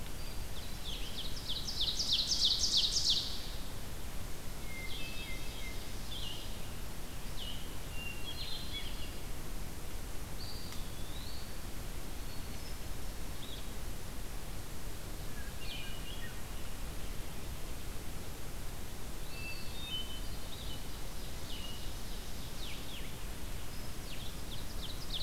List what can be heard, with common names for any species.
Hermit Thrush, Ovenbird, Blue-headed Vireo, Eastern Wood-Pewee